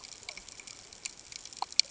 {"label": "ambient", "recorder": "HydroMoth"}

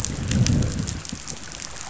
{"label": "biophony, growl", "recorder": "SoundTrap 500"}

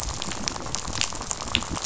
{"label": "biophony, rattle", "recorder": "SoundTrap 500"}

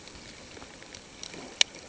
{"label": "ambient", "recorder": "HydroMoth"}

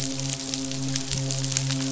{"label": "biophony, midshipman", "recorder": "SoundTrap 500"}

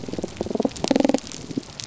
{"label": "biophony", "recorder": "SoundTrap 300"}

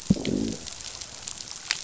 {"label": "biophony, growl", "recorder": "SoundTrap 500"}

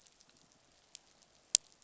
{"label": "biophony", "recorder": "SoundTrap 500"}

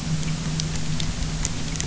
{"label": "anthrophony, boat engine", "recorder": "SoundTrap 300"}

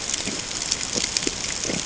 {"label": "ambient", "recorder": "HydroMoth"}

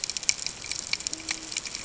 {"label": "ambient", "recorder": "HydroMoth"}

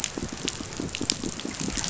{"label": "biophony, pulse", "recorder": "SoundTrap 500"}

